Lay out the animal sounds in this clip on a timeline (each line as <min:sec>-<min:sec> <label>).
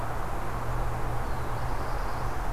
0:00.9-0:02.5 Black-throated Blue Warbler (Setophaga caerulescens)